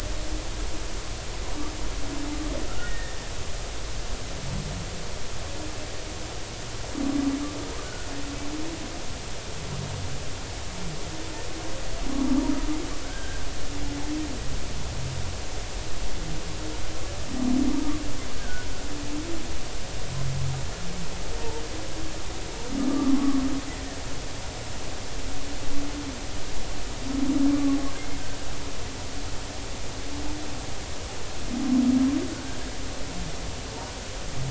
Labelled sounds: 2.7	3.2	humpback whale, 1.3 to 1.9 kHz
13.0	13.4	humpback whale, 1.3 to 1.7 kHz
18.4	18.7	humpback whale, 1.4 to 1.7 kHz
22.9	23.4	humpback whale, 1.0 to 1.3 kHz
32.3	32.6	humpback whale, 1.4 to 1.6 kHz

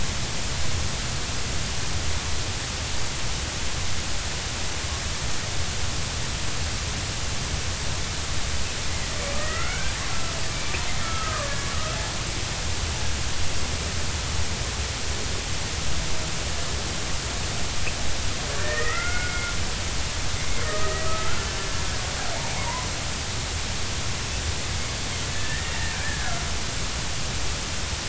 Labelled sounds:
9.4	10.4	killer whale, Bigg's (transient), 1.2 to 2.4 kHz
12.0	12.6	killer whale, Bigg's (transient), 0.99 to 1.4 kHz
18.5	19.4	killer whale, Bigg's (transient), 1.2 to 2.2 kHz
20.6	21.5	killer whale, Bigg's (transient), 1.2 to 2.0 kHz
22.5	22.9	killer whale, Bigg's (transient), 0.83 to 1.1 kHz
25.3	26.2	killer whale, Bigg's (transient), 1.5 to 2.0 kHz

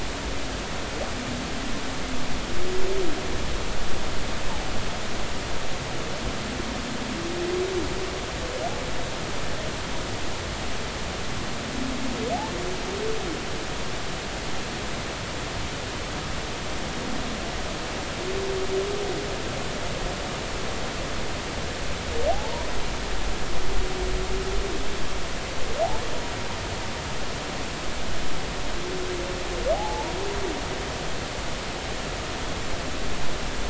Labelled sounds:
22.3	22.7	humpback whale, 0.80 to 1.0 kHz
29.7	30.1	humpback whale, 0.80 to 0.99 kHz

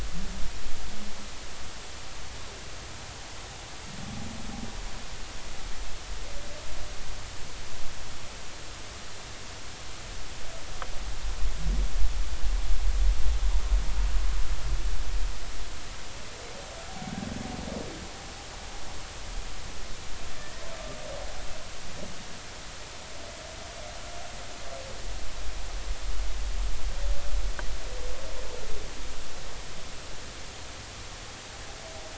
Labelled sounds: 20.3	20.6	humpback whale, 1.7 to 1.9 kHz

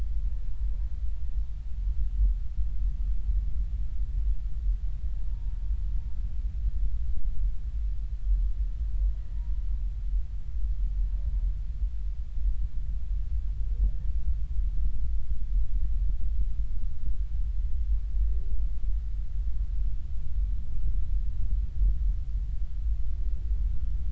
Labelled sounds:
5.3	5.5	humpback whale, 0.86 to 0.99 kHz

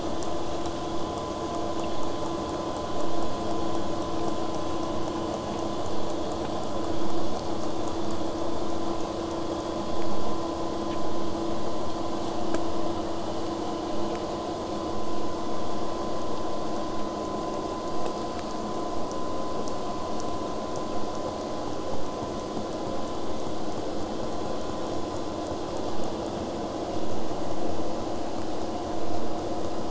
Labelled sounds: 11.9	16.9	vessel noise, 0 to 8.0 kHz

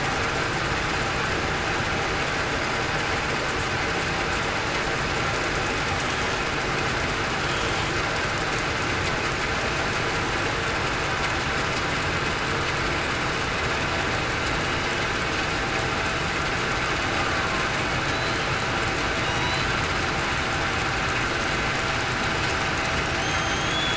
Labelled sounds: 18.1	18.4	killer whale, southern resident, 3.8 to 4.1 kHz
23.2	23.7	killer whale, southern resident, 3.1 to 3.3 kHz

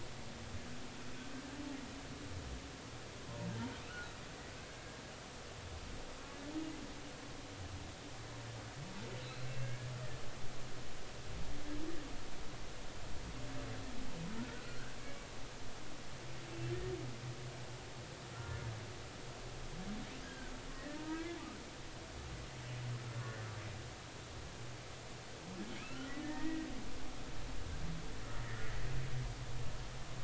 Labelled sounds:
9.2	9.9	humpback whale, 1.5 to 4.2 kHz
14.6	15.3	humpback whale, 1.3 to 2.3 kHz
18.3	18.6	humpback whale, 1.3 to 1.4 kHz
20.2	21.4	humpback whale, 1.5 to 2.0 kHz
23.2	23.5	humpback whale, 1.4 to 1.6 kHz
25.8	26.7	humpback whale, 1.2 to 2.0 kHz
28.4	28.7	humpback whale, 1.6 to 2.0 kHz

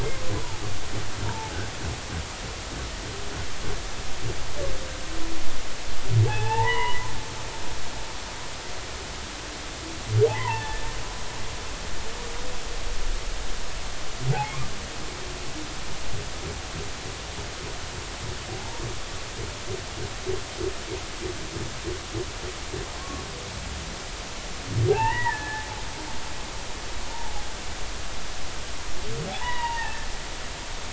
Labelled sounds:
0.4	0.6	humpback whale, 0.80 to 1.1 kHz
1.3	1.6	humpback whale, 0.83 to 0.99 kHz
6.3	7.1	humpback whale, 0.80 to 3.0 kHz
10.3	10.9	humpback whale, 0.80 to 2.2 kHz
23.0	23.2	humpback whale, 1.0 to 1.2 kHz
24.9	25.7	humpback whale, 0.80 to 2.9 kHz
29.3	30.1	humpback whale, 0.80 to 3.0 kHz

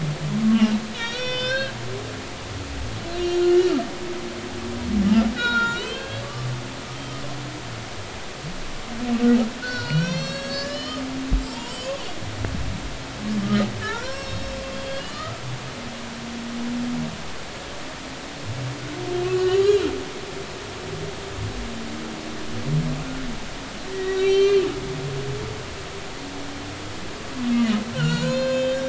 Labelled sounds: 0.5	1.7	humpback whale, 0.96 to 6.0 kHz
3.1	3.8	humpback whale, 1.2 to 5.8 kHz
5.3	7.2	humpback whale, 0.90 to 4.4 kHz
9.6	11.0	humpback whale, 1.4 to 7.7 kHz
11.5	12.0	humpback whale, 0.86 to 4.9 kHz
13.4	15.4	humpback whale, 1.1 to 8.0 kHz
19.2	19.9	humpback whale, 1.1 to 4.2 kHz
23.9	24.7	humpback whale, 1.8 to 6.0 kHz
27.9	28.8	humpback whale, 0.90 to 7.3 kHz

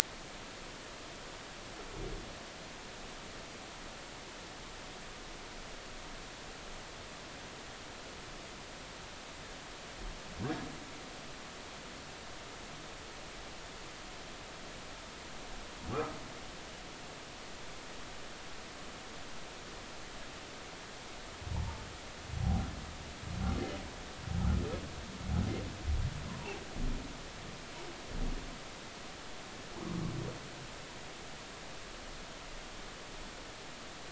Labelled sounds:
15.9	16.2	humpback whale, 1.1 to 1.4 kHz
21.5	21.8	humpback whale, 0.83 to 0.99 kHz

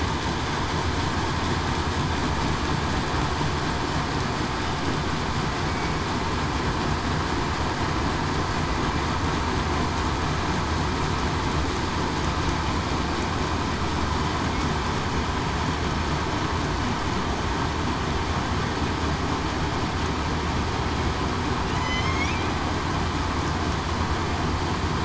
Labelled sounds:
21.7	22.3	killer whale, southern resident, 1.9 to 2.3 kHz

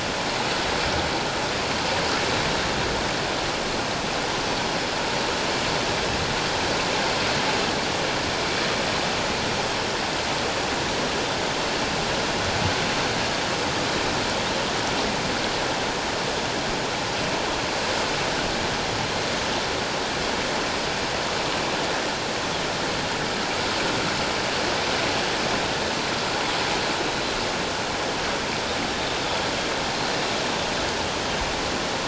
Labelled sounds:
27.0	27.4	Pacific white-sided dolphin, 3.9 to 4.1 kHz

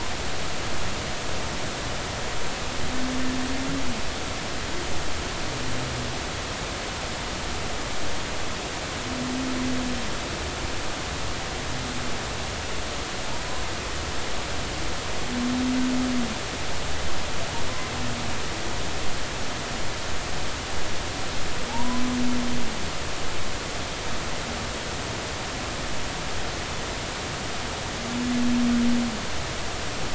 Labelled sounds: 21.7	22.0	humpback whale, 0.80 to 1.1 kHz

